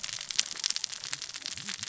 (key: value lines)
label: biophony, cascading saw
recorder: SoundTrap 600 or HydroMoth